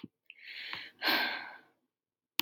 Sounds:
Sigh